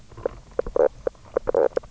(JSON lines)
{"label": "biophony, knock croak", "recorder": "SoundTrap 300"}